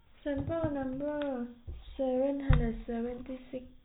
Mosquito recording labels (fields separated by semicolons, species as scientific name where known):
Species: no mosquito; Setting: cup